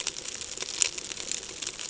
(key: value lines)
label: ambient
recorder: HydroMoth